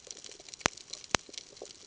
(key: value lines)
label: ambient
recorder: HydroMoth